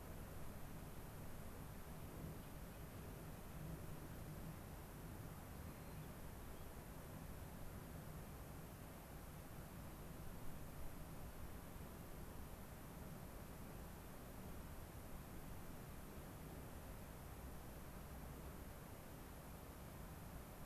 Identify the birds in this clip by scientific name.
Zonotrichia leucophrys